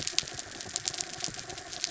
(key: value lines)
label: anthrophony, mechanical
recorder: SoundTrap 300